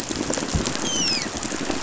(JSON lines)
{"label": "biophony, dolphin", "recorder": "SoundTrap 500"}